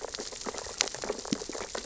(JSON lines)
{"label": "biophony, sea urchins (Echinidae)", "recorder": "SoundTrap 600 or HydroMoth"}